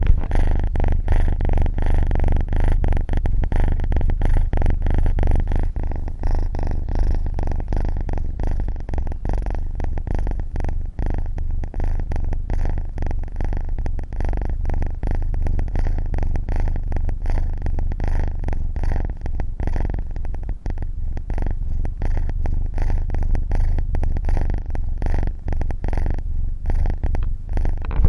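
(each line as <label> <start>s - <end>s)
Purring sounds repeating rhythmically. 0.2s - 28.0s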